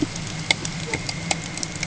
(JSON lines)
{"label": "ambient", "recorder": "HydroMoth"}